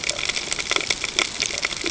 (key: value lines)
label: ambient
recorder: HydroMoth